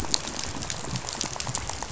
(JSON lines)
{"label": "biophony, rattle", "recorder": "SoundTrap 500"}